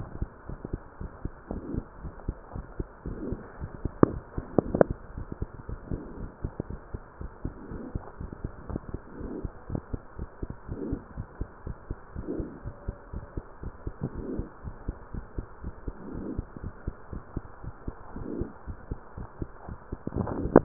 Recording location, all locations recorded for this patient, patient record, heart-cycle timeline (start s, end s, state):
mitral valve (MV)
aortic valve (AV)+pulmonary valve (PV)+tricuspid valve (TV)+mitral valve (MV)
#Age: Child
#Sex: Female
#Height: 104.0 cm
#Weight: 20.4 kg
#Pregnancy status: False
#Murmur: Absent
#Murmur locations: nan
#Most audible location: nan
#Systolic murmur timing: nan
#Systolic murmur shape: nan
#Systolic murmur grading: nan
#Systolic murmur pitch: nan
#Systolic murmur quality: nan
#Diastolic murmur timing: nan
#Diastolic murmur shape: nan
#Diastolic murmur grading: nan
#Diastolic murmur pitch: nan
#Diastolic murmur quality: nan
#Outcome: Abnormal
#Campaign: 2015 screening campaign
0.00	0.26	unannotated
0.26	0.47	diastole
0.47	0.58	S1
0.58	0.72	systole
0.72	0.80	S2
0.80	0.97	diastole
0.97	1.08	S1
1.08	1.19	systole
1.19	1.32	S2
1.32	1.52	diastole
1.52	1.64	S1
1.64	1.72	systole
1.72	1.84	S2
1.84	2.04	diastole
2.04	2.12	S1
2.12	2.26	systole
2.26	2.35	S2
2.35	2.53	diastole
2.53	2.63	S1
2.63	2.78	systole
2.78	2.86	S2
2.86	3.06	diastole
3.06	3.18	S1
3.18	3.30	systole
3.30	3.40	S2
3.40	3.60	diastole
3.60	3.70	S1
3.70	3.84	systole
3.84	3.92	S2
3.92	4.04	diastole
4.04	4.20	S1
4.20	4.36	systole
4.36	4.46	S2
4.46	4.64	diastole
4.64	4.74	S1
4.74	4.87	systole
4.87	4.95	S2
4.95	5.17	diastole
5.17	5.26	S1
5.26	5.39	systole
5.39	5.46	S2
5.46	5.68	diastole
5.68	5.80	S1
5.80	5.92	systole
5.92	6.02	S2
6.02	6.20	diastole
6.20	6.28	S1
6.28	6.42	systole
6.42	6.49	S2
6.49	6.68	diastole
6.68	6.76	S1
6.76	6.91	systole
6.91	7.00	S2
7.00	7.18	diastole
7.18	7.30	S1
7.30	7.43	systole
7.43	7.52	S2
7.52	7.70	diastole
7.70	7.79	S1
7.79	7.92	systole
7.92	8.02	S2
8.02	8.20	diastole
8.20	8.28	S1
8.28	8.42	systole
8.42	8.52	S2
8.52	8.69	diastole
8.69	8.80	S1
8.80	8.92	systole
8.92	9.00	S2
9.00	9.20	diastole
9.20	9.29	S1
9.29	9.42	systole
9.42	9.52	S2
9.52	9.70	diastole
9.70	9.82	S1
9.82	9.92	systole
9.92	10.00	S2
10.00	10.20	diastole
10.20	10.28	S1
10.28	10.41	systole
10.41	10.50	S2
10.50	10.68	diastole
10.68	10.79	S1
10.79	20.64	unannotated